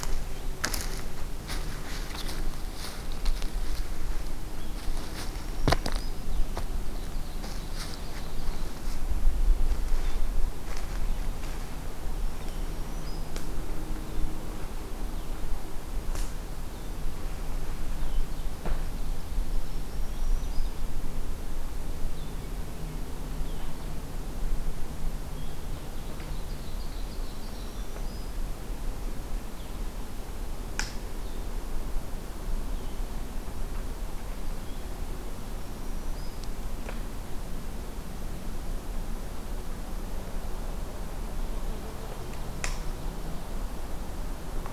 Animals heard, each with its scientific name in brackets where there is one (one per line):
Black-throated Green Warbler (Setophaga virens)
Ovenbird (Seiurus aurocapilla)
Red-eyed Vireo (Vireo olivaceus)